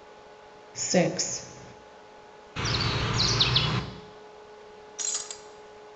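First, someone says "six". Then chirping can be heard. Finally, glass shatters.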